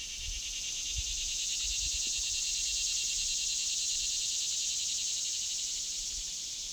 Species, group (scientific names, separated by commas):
Neotibicen tibicen, Cicadidae